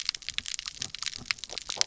{"label": "biophony, stridulation", "recorder": "SoundTrap 300"}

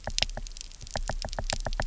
{"label": "biophony, knock", "recorder": "SoundTrap 300"}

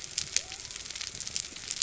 {"label": "biophony", "recorder": "SoundTrap 300"}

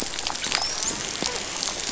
{"label": "biophony, dolphin", "recorder": "SoundTrap 500"}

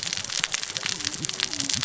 {"label": "biophony, cascading saw", "recorder": "SoundTrap 600 or HydroMoth"}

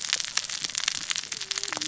{"label": "biophony, cascading saw", "recorder": "SoundTrap 600 or HydroMoth"}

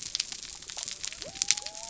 {"label": "biophony", "recorder": "SoundTrap 300"}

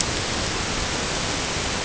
{"label": "ambient", "recorder": "HydroMoth"}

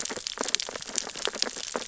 {"label": "biophony, sea urchins (Echinidae)", "recorder": "SoundTrap 600 or HydroMoth"}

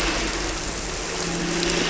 {"label": "anthrophony, boat engine", "recorder": "SoundTrap 300"}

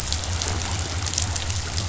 {"label": "biophony", "recorder": "SoundTrap 500"}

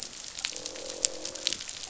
{"label": "biophony, croak", "recorder": "SoundTrap 500"}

